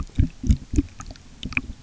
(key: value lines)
label: geophony, waves
recorder: SoundTrap 300